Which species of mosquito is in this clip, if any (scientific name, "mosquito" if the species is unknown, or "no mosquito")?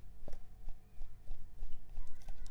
Anopheles arabiensis